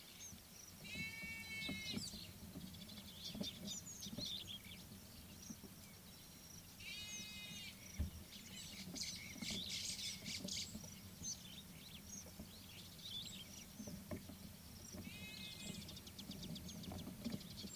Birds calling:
White-browed Sparrow-Weaver (Plocepasser mahali)

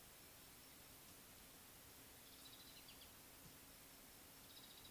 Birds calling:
Mariqua Sunbird (Cinnyris mariquensis)

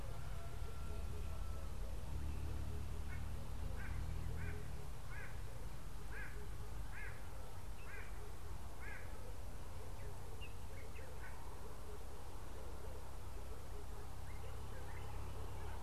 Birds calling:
White-bellied Go-away-bird (Corythaixoides leucogaster)

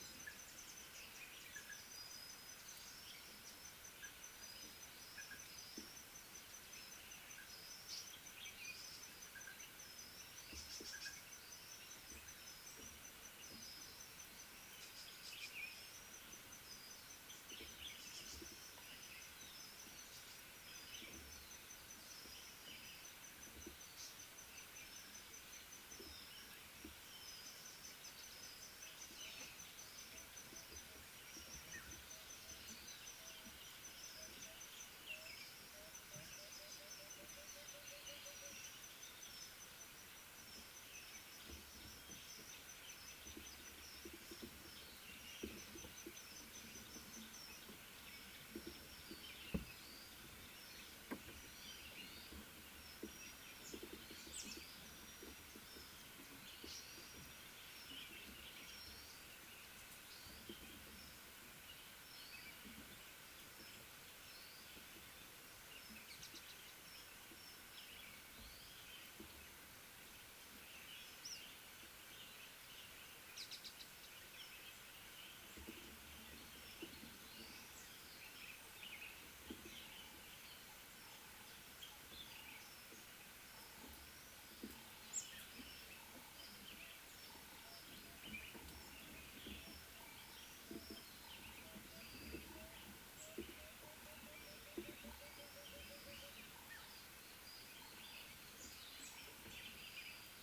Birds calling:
Tawny-flanked Prinia (Prinia subflava), Speckled Mousebird (Colius striatus), African Paradise-Flycatcher (Terpsiphone viridis), Red-fronted Tinkerbird (Pogoniulus pusillus)

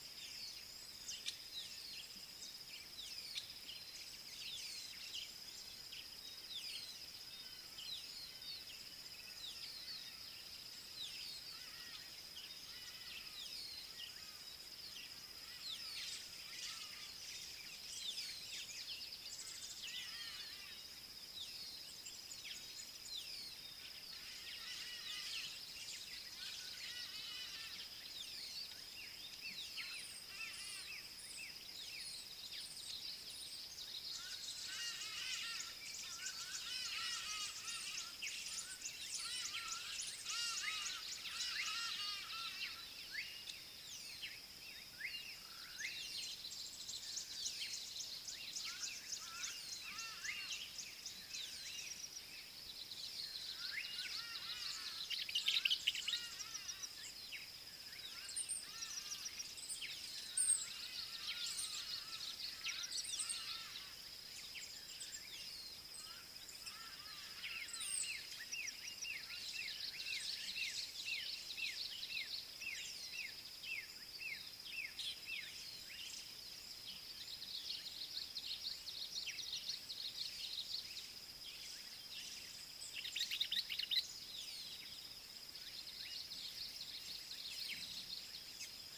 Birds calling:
Red-faced Crombec (Sylvietta whytii), Hadada Ibis (Bostrychia hagedash), Rufous Chatterer (Argya rubiginosa), Black-backed Puffback (Dryoscopus cubla), Common Bulbul (Pycnonotus barbatus), Slate-colored Boubou (Laniarius funebris), African Goshawk (Accipiter tachiro), Southern Black-Flycatcher (Melaenornis pammelaina)

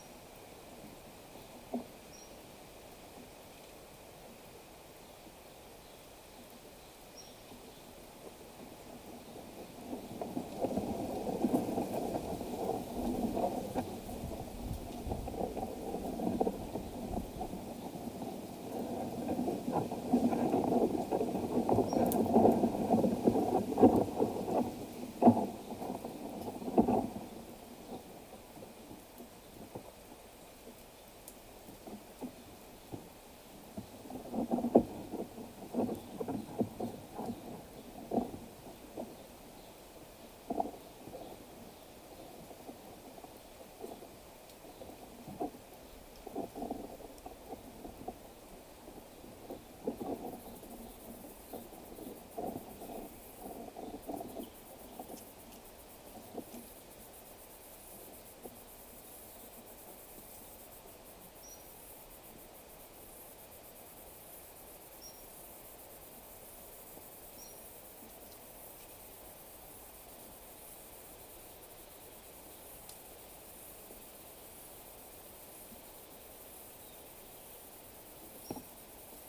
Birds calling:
Cinnamon-chested Bee-eater (Merops oreobates)

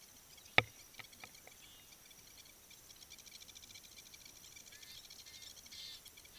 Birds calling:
Blacksmith Lapwing (Vanellus armatus)

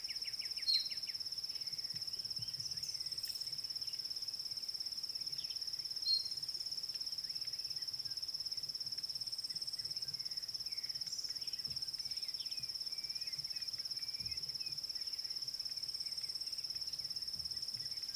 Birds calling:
Klaas's Cuckoo (Chrysococcyx klaas)

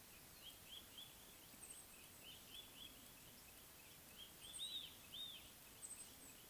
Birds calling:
Mouse-colored Penduline-Tit (Anthoscopus musculus), Red-backed Scrub-Robin (Cercotrichas leucophrys)

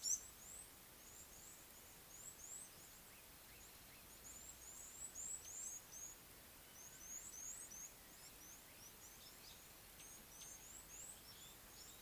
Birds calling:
Red-cheeked Cordonbleu (Uraeginthus bengalus)

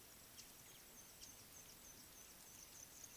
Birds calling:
Mouse-colored Penduline-Tit (Anthoscopus musculus)

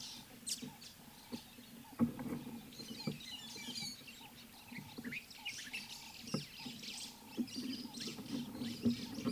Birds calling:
White-headed Buffalo-Weaver (Dinemellia dinemelli), Ring-necked Dove (Streptopelia capicola)

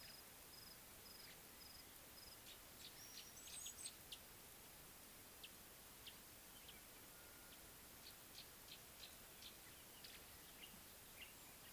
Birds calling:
Gray-backed Camaroptera (Camaroptera brevicaudata)

